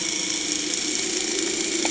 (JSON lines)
{"label": "anthrophony, boat engine", "recorder": "HydroMoth"}